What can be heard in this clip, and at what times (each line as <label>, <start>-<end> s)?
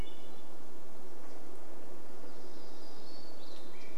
vehicle engine, 0-4 s
Hermit Thrush song, 2-4 s
Swainson's Thrush song, 2-4 s
unidentified sound, 2-4 s